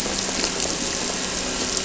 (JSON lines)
{"label": "anthrophony, boat engine", "recorder": "SoundTrap 300"}